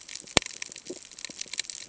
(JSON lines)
{"label": "ambient", "recorder": "HydroMoth"}